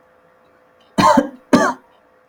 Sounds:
Cough